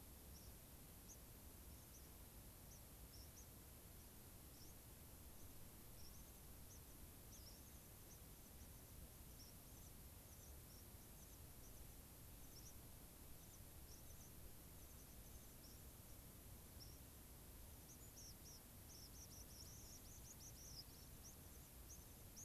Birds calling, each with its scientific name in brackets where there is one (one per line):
White-crowned Sparrow (Zonotrichia leucophrys)